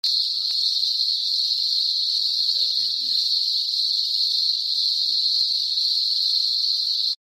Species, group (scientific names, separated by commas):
Cyclochila australasiae, Cicadidae